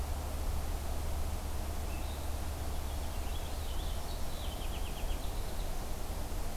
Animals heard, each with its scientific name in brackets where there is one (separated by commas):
Purple Finch (Haemorhous purpureus)